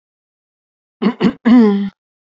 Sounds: Throat clearing